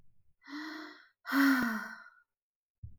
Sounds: Sigh